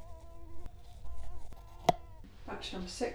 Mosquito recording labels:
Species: Culex quinquefasciatus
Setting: cup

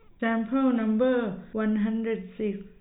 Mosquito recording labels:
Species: no mosquito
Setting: cup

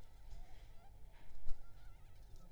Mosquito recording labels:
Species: Aedes aegypti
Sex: female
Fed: unfed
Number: one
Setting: cup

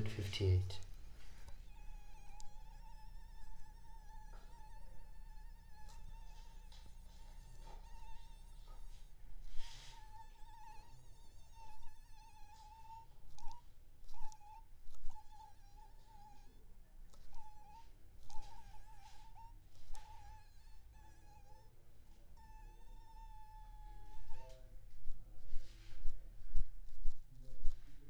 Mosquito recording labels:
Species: mosquito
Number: one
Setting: cup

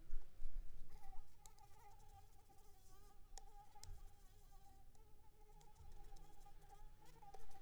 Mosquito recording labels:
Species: Anopheles arabiensis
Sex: female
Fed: unfed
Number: one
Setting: cup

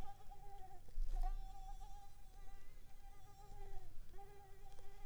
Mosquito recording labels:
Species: Mansonia africanus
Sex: female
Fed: unfed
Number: one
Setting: cup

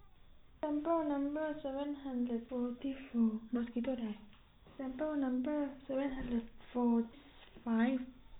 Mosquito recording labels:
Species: no mosquito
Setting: cup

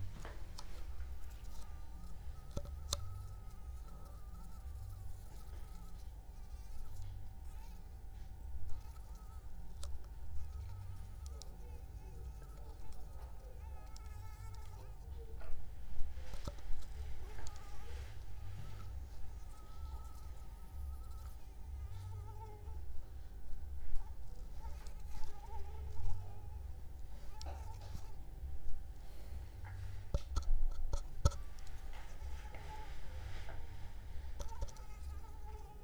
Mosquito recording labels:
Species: Anopheles arabiensis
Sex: female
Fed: unfed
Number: one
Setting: cup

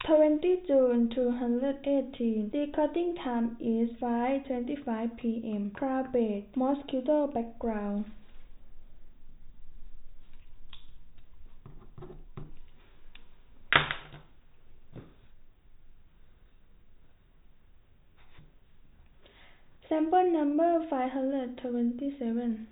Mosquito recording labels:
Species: no mosquito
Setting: cup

